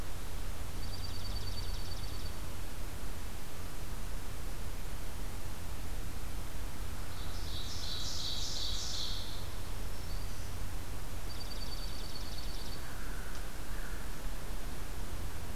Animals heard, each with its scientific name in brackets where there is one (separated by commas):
Dark-eyed Junco (Junco hyemalis), Ovenbird (Seiurus aurocapilla), Black-throated Green Warbler (Setophaga virens), American Crow (Corvus brachyrhynchos)